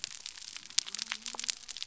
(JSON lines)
{"label": "biophony", "recorder": "SoundTrap 300"}